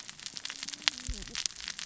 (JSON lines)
{"label": "biophony, cascading saw", "recorder": "SoundTrap 600 or HydroMoth"}